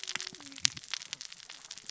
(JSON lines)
{"label": "biophony, cascading saw", "recorder": "SoundTrap 600 or HydroMoth"}